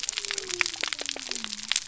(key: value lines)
label: biophony
recorder: SoundTrap 300